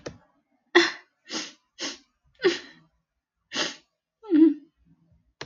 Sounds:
Sigh